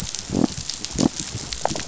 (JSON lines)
{"label": "biophony", "recorder": "SoundTrap 500"}